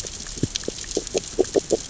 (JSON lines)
{"label": "biophony, grazing", "recorder": "SoundTrap 600 or HydroMoth"}